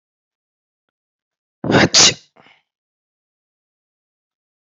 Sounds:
Sneeze